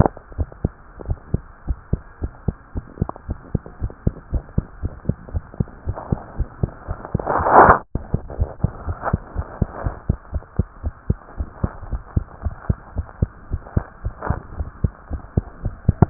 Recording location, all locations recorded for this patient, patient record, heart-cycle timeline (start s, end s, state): tricuspid valve (TV)
aortic valve (AV)+pulmonary valve (PV)+tricuspid valve (TV)+mitral valve (MV)
#Age: Child
#Sex: Male
#Height: 94.0 cm
#Weight: 13.6 kg
#Pregnancy status: False
#Murmur: Absent
#Murmur locations: nan
#Most audible location: nan
#Systolic murmur timing: nan
#Systolic murmur shape: nan
#Systolic murmur grading: nan
#Systolic murmur pitch: nan
#Systolic murmur quality: nan
#Diastolic murmur timing: nan
#Diastolic murmur shape: nan
#Diastolic murmur grading: nan
#Diastolic murmur pitch: nan
#Diastolic murmur quality: nan
#Outcome: Abnormal
#Campaign: 2015 screening campaign
0.00	0.34	unannotated
0.34	0.48	S1
0.48	0.62	systole
0.62	0.73	S2
0.73	1.00	diastole
1.00	1.18	S1
1.18	1.30	systole
1.30	1.44	S2
1.44	1.66	diastole
1.66	1.78	S1
1.78	1.88	systole
1.88	2.04	S2
2.04	2.22	diastole
2.22	2.32	S1
2.32	2.44	systole
2.44	2.58	S2
2.58	2.74	diastole
2.74	2.84	S1
2.84	2.98	systole
2.98	3.10	S2
3.10	3.26	diastole
3.26	3.38	S1
3.38	3.50	systole
3.50	3.64	S2
3.64	3.79	diastole
3.79	3.92	S1
3.92	4.02	systole
4.02	4.16	S2
4.16	4.30	diastole
4.30	4.44	S1
4.44	4.54	systole
4.54	4.66	S2
4.66	4.80	diastole
4.80	4.94	S1
4.94	5.06	systole
5.06	5.16	S2
5.16	5.32	diastole
5.32	5.44	S1
5.44	5.56	systole
5.56	5.68	S2
5.68	5.86	diastole
5.86	5.98	S1
5.98	6.08	systole
6.08	6.20	S2
6.20	6.36	diastole
6.36	6.48	S1
6.48	6.60	systole
6.60	6.74	S2
6.74	6.88	diastole
6.88	6.98	S1
6.98	7.10	systole
7.10	7.22	S2
7.22	7.91	unannotated
7.91	8.04	S1
8.04	8.12	systole
8.12	8.22	S2
8.22	8.36	diastole
8.36	8.52	S1
8.52	8.62	systole
8.62	8.72	S2
8.72	8.86	diastole
8.86	8.98	S1
8.98	9.12	systole
9.12	9.22	S2
9.22	9.36	diastole
9.36	9.46	S1
9.46	9.58	systole
9.58	9.70	S2
9.70	9.84	diastole
9.84	9.98	S1
9.98	10.06	systole
10.06	10.20	S2
10.20	10.32	diastole
10.32	10.44	S1
10.44	10.56	systole
10.56	10.68	S2
10.68	10.82	diastole
10.82	10.94	S1
10.94	11.06	systole
11.06	11.20	S2
11.20	11.36	diastole
11.36	11.48	S1
11.48	11.61	systole
11.61	11.72	S2
11.72	11.88	diastole
11.88	12.02	S1
12.02	12.12	systole
12.12	12.26	S2
12.26	12.44	diastole
12.44	12.56	S1
12.56	12.66	systole
12.66	12.78	S2
12.78	12.96	diastole
12.96	13.08	S1
13.08	13.18	systole
13.18	13.32	S2
13.32	13.50	diastole
13.50	13.62	S1
13.62	13.72	systole
13.72	13.88	S2
13.88	14.02	diastole
14.02	14.14	S1
14.14	14.28	systole
14.28	14.42	S2
14.42	14.56	diastole
14.56	14.70	S1
14.70	14.80	systole
14.80	14.94	S2
14.94	15.09	diastole
15.09	15.22	S1
15.22	15.34	systole
15.34	15.48	S2
15.48	15.61	diastole
15.61	15.76	S1
15.76	15.86	systole
15.86	15.97	S2
15.97	16.10	unannotated